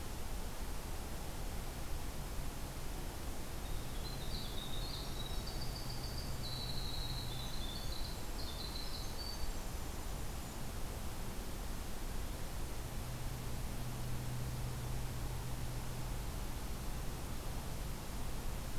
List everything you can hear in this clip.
Winter Wren